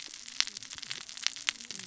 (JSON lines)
{"label": "biophony, cascading saw", "recorder": "SoundTrap 600 or HydroMoth"}